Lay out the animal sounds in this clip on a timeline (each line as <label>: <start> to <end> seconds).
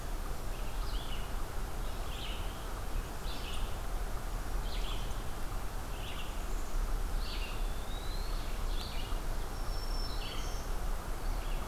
Red-eyed Vireo (Vireo olivaceus): 0.0 to 11.7 seconds
Black-capped Chickadee (Poecile atricapillus): 6.1 to 7.2 seconds
Eastern Wood-Pewee (Contopus virens): 7.0 to 8.6 seconds
Black-throated Green Warbler (Setophaga virens): 9.4 to 10.7 seconds